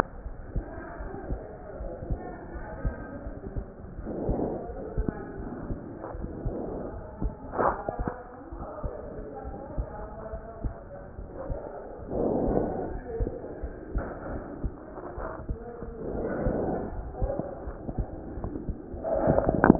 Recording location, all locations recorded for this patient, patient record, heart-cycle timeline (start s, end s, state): aortic valve (AV)
aortic valve (AV)+pulmonary valve (PV)+tricuspid valve (TV)+mitral valve (MV)
#Age: Child
#Sex: Male
#Height: 129.0 cm
#Weight: 22.3 kg
#Pregnancy status: False
#Murmur: Present
#Murmur locations: pulmonary valve (PV)+tricuspid valve (TV)
#Most audible location: pulmonary valve (PV)
#Systolic murmur timing: Late-systolic
#Systolic murmur shape: Diamond
#Systolic murmur grading: I/VI
#Systolic murmur pitch: Low
#Systolic murmur quality: Harsh
#Diastolic murmur timing: nan
#Diastolic murmur shape: nan
#Diastolic murmur grading: nan
#Diastolic murmur pitch: nan
#Diastolic murmur quality: nan
#Outcome: Abnormal
#Campaign: 2015 screening campaign
0.00	0.24	diastole
0.24	0.36	S1
0.36	0.48	systole
0.48	0.64	S2
0.64	0.97	diastole
0.97	1.12	S1
1.12	1.26	systole
1.26	1.40	S2
1.40	1.77	diastole
1.77	1.92	S1
1.92	2.05	systole
2.05	2.18	S2
2.18	2.50	diastole
2.50	2.66	S1
2.66	2.78	systole
2.78	2.94	S2
2.94	3.25	diastole
3.25	3.41	S1
3.41	3.54	systole
3.54	3.66	S2
3.66	3.94	diastole
3.94	4.08	S1
4.08	4.25	systole
4.25	4.43	S2
4.43	4.66	diastole
4.66	4.81	S1
4.81	4.94	systole
4.94	5.07	S2
5.07	5.33	diastole
5.33	5.50	S1
5.50	5.66	systole
5.66	5.81	S2
5.81	6.11	diastole
6.11	6.24	S1
6.24	6.44	systole
6.44	6.58	S2
6.58	6.87	diastole
6.87	7.04	S1
7.04	7.20	systole
7.20	7.34	S2
7.34	7.54	diastole